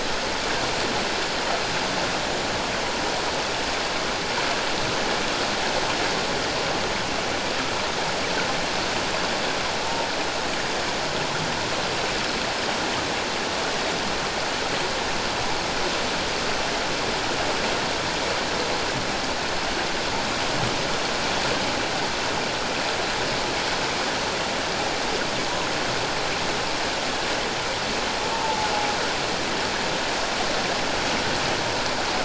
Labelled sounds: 9.8	10.1	humpback whale, 0.81 to 0.97 kHz
28.3	28.7	humpback whale, 0.81 to 1.0 kHz

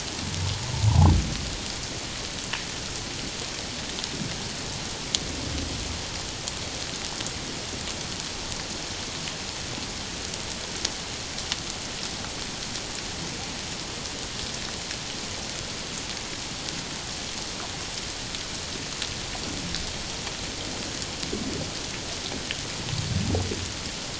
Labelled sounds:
0.9	1.1	humpback whale, 0.78 to 1.1 kHz

